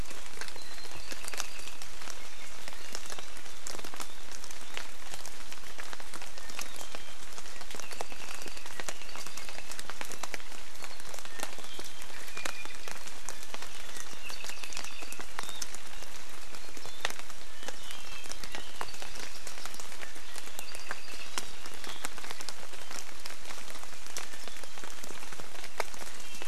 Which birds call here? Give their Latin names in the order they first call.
Himatione sanguinea, Zosterops japonicus, Chlorodrepanis virens